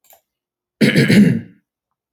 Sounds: Throat clearing